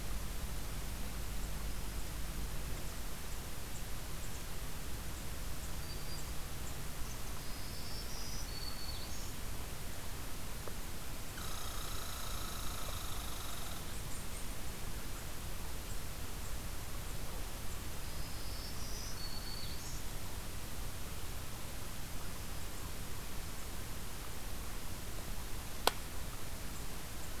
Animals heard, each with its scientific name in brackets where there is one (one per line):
Black-throated Green Warbler (Setophaga virens)
Red Squirrel (Tamiasciurus hudsonicus)